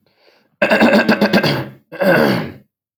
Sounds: Throat clearing